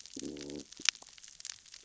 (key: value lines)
label: biophony, growl
recorder: SoundTrap 600 or HydroMoth